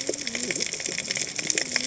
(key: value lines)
label: biophony, cascading saw
recorder: HydroMoth